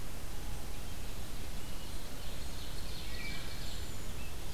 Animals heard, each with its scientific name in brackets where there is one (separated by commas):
Cedar Waxwing (Bombycilla cedrorum), Wood Thrush (Hylocichla mustelina), Ovenbird (Seiurus aurocapilla)